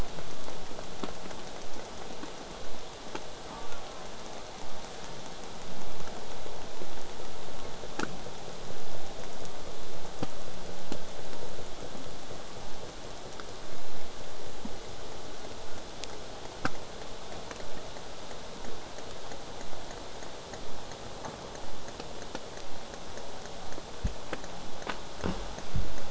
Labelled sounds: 15.6	20.6	vessel noise, 0 to 8.0 kHz

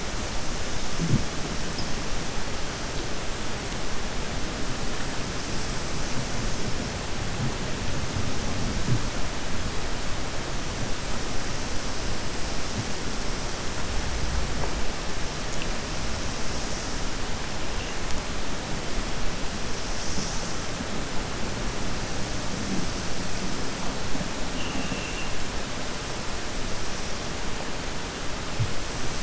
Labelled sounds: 24.5	25.3	vessel noise, 2.4 to 3.5 kHz

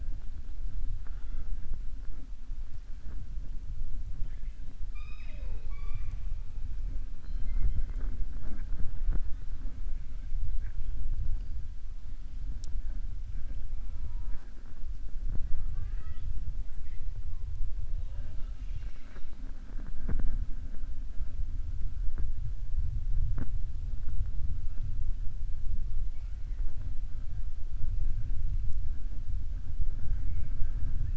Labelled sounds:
4.8	6.2	killer whale, southern resident, 0.46 to 7.4 kHz
17.9	19.4	killer whale, southern resident, 0.49 to 6.3 kHz

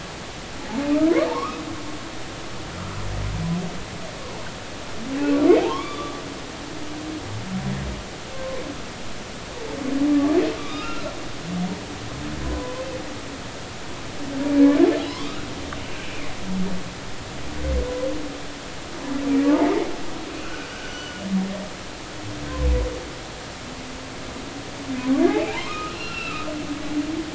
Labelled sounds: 1.3	1.6	humpback whale, 0.83 to 1.3 kHz
5.6	6.2	humpback whale, 0.80 to 3.6 kHz
8.3	8.6	humpback whale, 0.99 to 1.1 kHz
10.6	11.1	humpback whale, 1.1 to 3.8 kHz
12.4	12.8	humpback whale, 0.96 to 1.1 kHz
15.2	15.8	humpback whale, 1.1 to 2.4 kHz
19.4	21.1	humpback whale, 0.83 to 6.0 kHz
25.3	26.5	humpback whale, 0.80 to 4.2 kHz

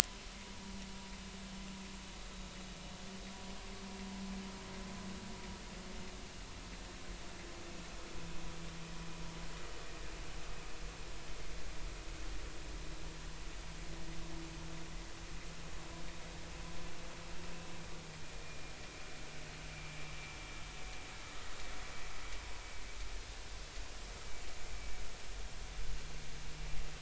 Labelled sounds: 0.3	0.8	vessel noise, 0.86 to 1.0 kHz

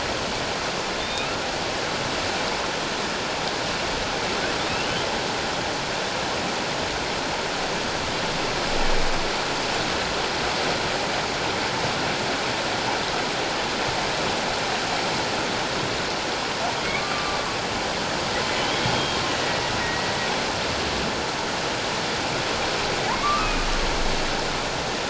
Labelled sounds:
1.1	1.4	humpback whale, 2.4 to 2.8 kHz
16.9	17.4	humpback whale, 1.1 to 1.2 kHz
18.6	19.5	humpback whale, 2.8 to 3.4 kHz
19.8	20.1	humpback whale, 1.8 to 2.0 kHz
23.2	23.7	humpback whale, 1.1 to 2.6 kHz

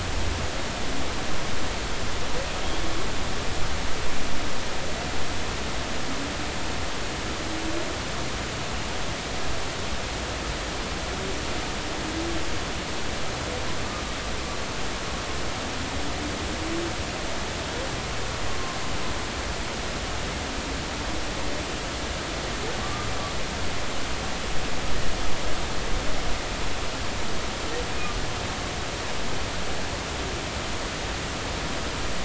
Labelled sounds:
22.8	23.1	humpback whale, 1.1 to 1.2 kHz

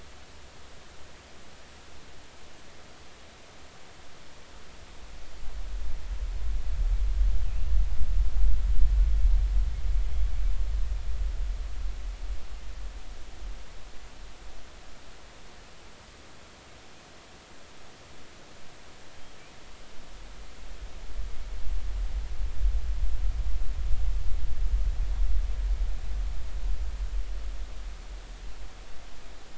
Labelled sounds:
7.4	7.7	killer whale, northern resident, 2.4 to 2.9 kHz

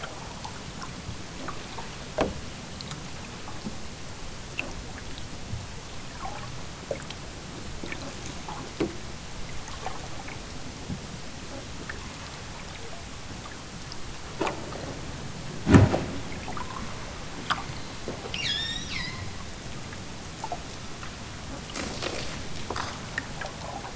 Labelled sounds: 18.3	19.4	killer whale, southern Alaska resident, 0.60 to 8.0 kHz

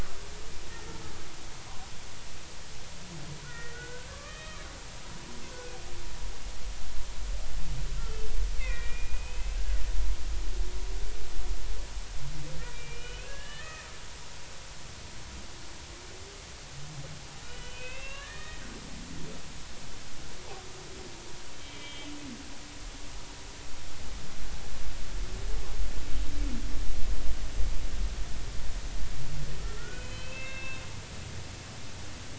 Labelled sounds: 3.4	4.6	humpback whale, 1.1 to 3.2 kHz
5.5	5.7	humpback whale, 1.4 to 1.6 kHz
8.6	9.6	humpback whale, 1.8 to 2.8 kHz
12.7	13.9	humpback whale, 1.2 to 3.0 kHz
17.5	18.7	humpback whale, 1.0 to 4.0 kHz
21.6	22.1	humpback whale, 2.0 to 3.2 kHz
29.6	30.8	humpback whale, 1.2 to 3.8 kHz

